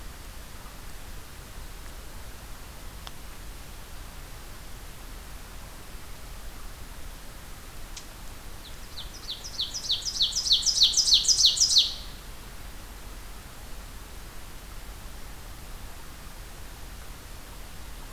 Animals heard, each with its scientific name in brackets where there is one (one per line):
Ovenbird (Seiurus aurocapilla)